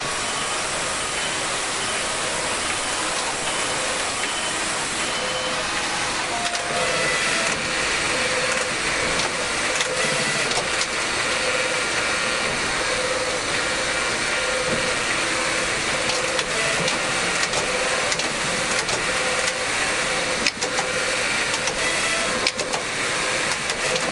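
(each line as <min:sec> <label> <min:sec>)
0:00.0 Industrial knitting machines operating in a factory. 0:24.1
0:06.4 The sound of a shutter operating in a textile factory. 0:06.6
0:07.5 The sound of a shutter operating in a textile factory. 0:07.7
0:08.5 The sound of a shutter operating in a textile factory. 0:09.9
0:10.5 The sound of a shutter operating in a textile factory. 0:10.9
0:15.9 Repeated shutter noises in a textile factory. 0:19.7
0:20.4 The sound of a shutter operating in a textile factory. 0:20.7
0:22.4 The sound of a shutter operating in a textile factory. 0:22.8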